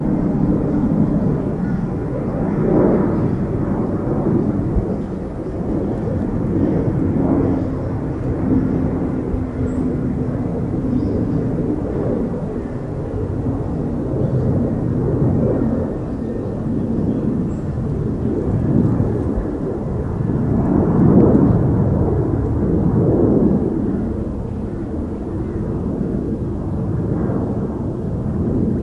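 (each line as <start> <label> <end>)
0.0 An airplane flies in the distance at a constant speed. 28.8
1.6 Birds chirping softly in the distance with a repetitive rhythm. 19.9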